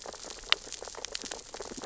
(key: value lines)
label: biophony, sea urchins (Echinidae)
recorder: SoundTrap 600 or HydroMoth